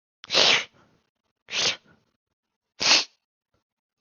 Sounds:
Sniff